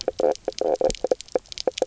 {"label": "biophony, knock croak", "recorder": "SoundTrap 300"}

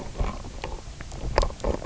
{"label": "biophony, knock croak", "recorder": "SoundTrap 300"}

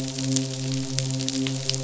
{"label": "biophony, midshipman", "recorder": "SoundTrap 500"}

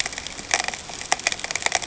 {"label": "ambient", "recorder": "HydroMoth"}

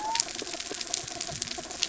{"label": "biophony", "recorder": "SoundTrap 300"}
{"label": "anthrophony, mechanical", "recorder": "SoundTrap 300"}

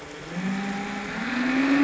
{"label": "anthrophony, boat engine", "recorder": "SoundTrap 500"}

